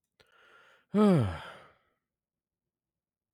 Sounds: Sigh